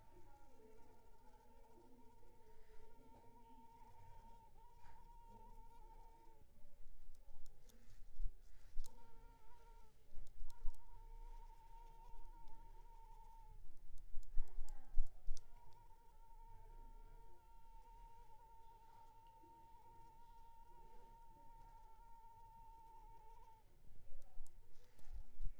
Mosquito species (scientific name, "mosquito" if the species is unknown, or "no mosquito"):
Culex pipiens complex